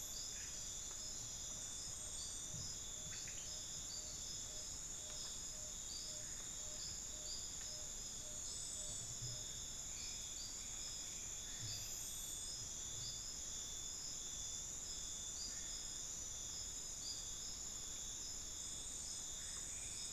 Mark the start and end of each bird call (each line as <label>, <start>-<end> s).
Tawny-bellied Screech-Owl (Megascops watsonii), 0.0-9.8 s